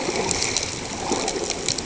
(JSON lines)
{"label": "ambient", "recorder": "HydroMoth"}